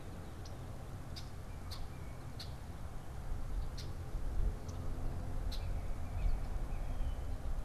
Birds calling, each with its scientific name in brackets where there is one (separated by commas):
Red-winged Blackbird (Agelaius phoeniceus)